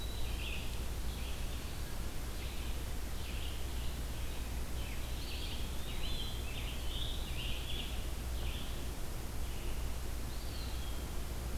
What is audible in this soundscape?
Red-eyed Vireo, Eastern Wood-Pewee, Scarlet Tanager